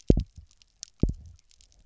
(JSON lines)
{"label": "biophony, double pulse", "recorder": "SoundTrap 300"}